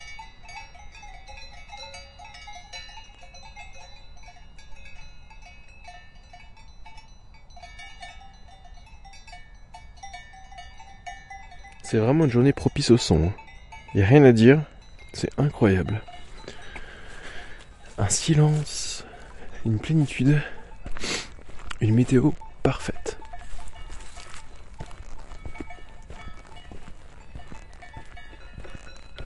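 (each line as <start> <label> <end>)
0.0 Cowbells ringing in a mountainous area. 11.8
11.8 Someone is speaking in French with cowbells ringing in the background. 23.0
23.1 Cowbells are ringing in the distance. 29.2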